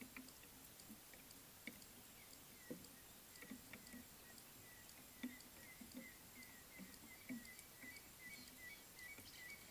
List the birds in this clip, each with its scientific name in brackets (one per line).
African Gray Hornbill (Lophoceros nasutus)